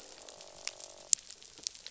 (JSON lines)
{"label": "biophony, croak", "recorder": "SoundTrap 500"}